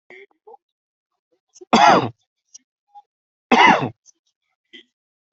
{"expert_labels": [{"quality": "ok", "cough_type": "dry", "dyspnea": false, "wheezing": false, "stridor": false, "choking": false, "congestion": false, "nothing": true, "diagnosis": "COVID-19", "severity": "mild"}], "age": 34, "gender": "male", "respiratory_condition": true, "fever_muscle_pain": true, "status": "symptomatic"}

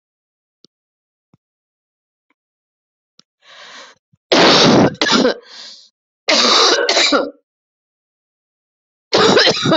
{"expert_labels": [{"quality": "good", "cough_type": "dry", "dyspnea": false, "wheezing": false, "stridor": false, "choking": false, "congestion": false, "nothing": true, "diagnosis": "COVID-19", "severity": "severe"}], "age": 49, "gender": "female", "respiratory_condition": false, "fever_muscle_pain": false, "status": "COVID-19"}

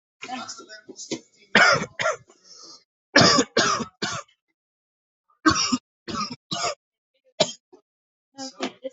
{"expert_labels": [{"quality": "ok", "cough_type": "dry", "dyspnea": false, "wheezing": false, "stridor": false, "choking": true, "congestion": false, "nothing": false, "diagnosis": "COVID-19", "severity": "mild"}], "age": 33, "gender": "male", "respiratory_condition": false, "fever_muscle_pain": false, "status": "symptomatic"}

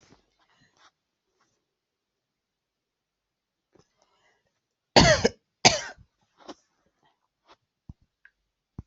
{"expert_labels": [{"quality": "good", "cough_type": "dry", "dyspnea": false, "wheezing": false, "stridor": false, "choking": false, "congestion": false, "nothing": true, "diagnosis": "healthy cough", "severity": "pseudocough/healthy cough"}], "age": 47, "gender": "female", "respiratory_condition": false, "fever_muscle_pain": false, "status": "COVID-19"}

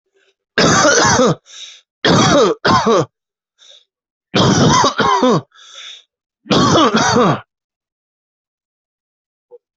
{"expert_labels": [{"quality": "good", "cough_type": "dry", "dyspnea": false, "wheezing": true, "stridor": false, "choking": false, "congestion": false, "nothing": false, "diagnosis": "obstructive lung disease", "severity": "severe"}], "gender": "female", "respiratory_condition": false, "fever_muscle_pain": false, "status": "COVID-19"}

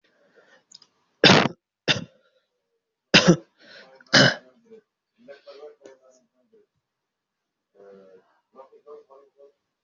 {"expert_labels": [{"quality": "ok", "cough_type": "unknown", "dyspnea": false, "wheezing": false, "stridor": false, "choking": false, "congestion": false, "nothing": true, "diagnosis": "lower respiratory tract infection", "severity": "mild"}], "gender": "male", "respiratory_condition": true, "fever_muscle_pain": true, "status": "COVID-19"}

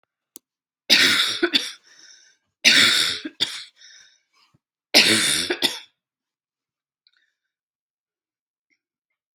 {"expert_labels": [{"quality": "good", "cough_type": "dry", "dyspnea": false, "wheezing": false, "stridor": false, "choking": false, "congestion": false, "nothing": true, "diagnosis": "COVID-19", "severity": "mild"}], "age": 36, "gender": "female", "respiratory_condition": false, "fever_muscle_pain": false, "status": "symptomatic"}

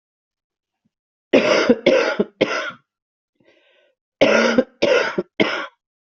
{"expert_labels": [{"quality": "ok", "cough_type": "wet", "dyspnea": false, "wheezing": true, "stridor": false, "choking": false, "congestion": false, "nothing": true, "diagnosis": "lower respiratory tract infection", "severity": "mild"}], "age": 57, "gender": "female", "respiratory_condition": false, "fever_muscle_pain": false, "status": "symptomatic"}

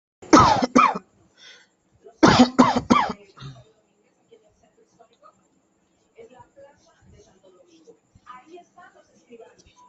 {"expert_labels": [{"quality": "good", "cough_type": "wet", "dyspnea": false, "wheezing": false, "stridor": false, "choking": false, "congestion": false, "nothing": true, "diagnosis": "lower respiratory tract infection", "severity": "mild"}], "gender": "female", "respiratory_condition": true, "fever_muscle_pain": false, "status": "COVID-19"}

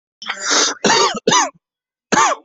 {"expert_labels": [{"quality": "good", "cough_type": "dry", "dyspnea": false, "wheezing": false, "stridor": false, "choking": false, "congestion": false, "nothing": true, "diagnosis": "upper respiratory tract infection", "severity": "mild"}], "age": 30, "gender": "male", "respiratory_condition": false, "fever_muscle_pain": false, "status": "symptomatic"}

